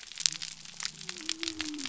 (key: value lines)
label: biophony
recorder: SoundTrap 300